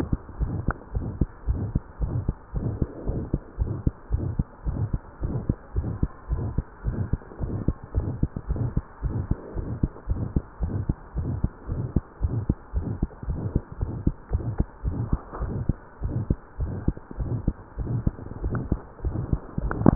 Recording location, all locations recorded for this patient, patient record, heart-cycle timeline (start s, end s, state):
tricuspid valve (TV)
aortic valve (AV)+pulmonary valve (PV)+tricuspid valve (TV)+mitral valve (MV)
#Age: Child
#Sex: Male
#Height: 108.0 cm
#Weight: 18.6 kg
#Pregnancy status: False
#Murmur: Present
#Murmur locations: aortic valve (AV)+mitral valve (MV)+pulmonary valve (PV)+tricuspid valve (TV)
#Most audible location: aortic valve (AV)
#Systolic murmur timing: Mid-systolic
#Systolic murmur shape: Diamond
#Systolic murmur grading: III/VI or higher
#Systolic murmur pitch: Medium
#Systolic murmur quality: Harsh
#Diastolic murmur timing: nan
#Diastolic murmur shape: nan
#Diastolic murmur grading: nan
#Diastolic murmur pitch: nan
#Diastolic murmur quality: nan
#Outcome: Abnormal
#Campaign: 2015 screening campaign
0.00	0.10	systole
0.10	0.20	S2
0.20	0.40	diastole
0.40	0.56	S1
0.56	0.66	systole
0.66	0.76	S2
0.76	0.94	diastole
0.94	1.04	S1
1.04	1.18	systole
1.18	1.30	S2
1.30	1.48	diastole
1.48	1.64	S1
1.64	1.72	systole
1.72	1.84	S2
1.84	2.00	diastole
2.00	2.16	S1
2.16	2.26	systole
2.26	2.36	S2
2.36	2.54	diastole
2.54	2.68	S1
2.68	2.78	systole
2.78	2.88	S2
2.88	3.06	diastole
3.06	3.20	S1
3.20	3.30	systole
3.30	3.40	S2
3.40	3.60	diastole
3.60	3.72	S1
3.72	3.80	systole
3.80	3.96	S2
3.96	4.12	diastole
4.12	4.28	S1
4.28	4.36	systole
4.36	4.48	S2
4.48	4.66	diastole
4.66	4.82	S1
4.82	4.92	systole
4.92	5.02	S2
5.02	5.22	diastole
5.22	5.36	S1
5.36	5.46	systole
5.46	5.56	S2
5.56	5.76	diastole
5.76	5.92	S1
5.92	6.00	systole
6.00	6.12	S2
6.12	6.30	diastole
6.30	6.46	S1
6.46	6.56	systole
6.56	6.68	S2
6.68	6.86	diastole
6.86	7.00	S1
7.00	7.10	systole
7.10	7.22	S2
7.22	7.42	diastole
7.42	7.58	S1
7.58	7.66	systole
7.66	7.76	S2
7.76	7.94	diastole
7.94	8.10	S1
8.10	8.20	systole
8.20	8.30	S2
8.30	8.50	diastole
8.50	8.64	S1
8.64	8.74	systole
8.74	8.84	S2
8.84	9.04	diastole
9.04	9.14	S1
9.14	9.28	systole
9.28	9.38	S2
9.38	9.56	diastole
9.56	9.66	S1
9.66	9.80	systole
9.80	9.92	S2
9.92	10.10	diastole
10.10	10.26	S1
10.26	10.34	systole
10.34	10.46	S2
10.46	10.62	diastole
10.62	10.76	S1
10.76	10.88	systole
10.88	10.96	S2
10.96	11.16	diastole
11.16	11.32	S1
11.32	11.42	systole
11.42	11.54	S2
11.54	11.70	diastole
11.70	11.86	S1
11.86	11.94	systole
11.94	12.06	S2
12.06	12.24	diastole
12.24	12.33	S1
12.33	12.48	systole
12.48	12.56	S2
12.56	12.76	diastole
12.76	12.92	S1
12.92	13.00	systole
13.00	13.10	S2
13.10	13.28	diastole
13.28	13.44	S1
13.44	13.54	systole
13.54	13.64	S2
13.64	13.80	diastole
13.80	13.90	S1
13.90	14.04	systole
14.04	14.14	S2
14.14	14.32	diastole
14.32	14.46	S1
14.46	14.58	systole
14.58	14.70	S2
14.70	14.86	diastole
14.86	15.00	S1
15.00	15.08	systole
15.08	15.22	S2
15.22	15.40	diastole
15.40	15.52	S1
15.52	15.66	systole
15.66	15.80	S2
15.80	16.02	diastole
16.02	16.14	S1
16.14	16.28	systole
16.28	16.40	S2
16.40	16.60	diastole
16.60	16.74	S1
16.74	16.86	systole
16.86	16.98	S2
16.98	17.18	diastole
17.18	17.30	S1
17.30	17.46	systole
17.46	17.58	S2
17.58	17.77	diastole
17.77	17.90	S1
17.90	18.04	systole
18.04	18.15	S2
18.15	18.44	diastole
18.44	18.60	S1
18.60	18.70	systole
18.70	18.82	S2
18.82	19.04	diastole
19.04	19.16	S1
19.16	19.30	systole
19.30	19.44	S2
19.44	19.57	diastole